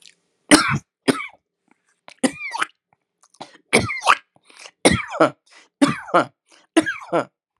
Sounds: Cough